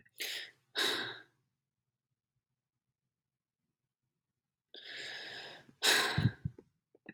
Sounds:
Sigh